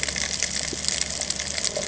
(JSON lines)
{"label": "ambient", "recorder": "HydroMoth"}